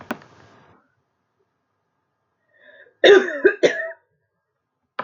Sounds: Cough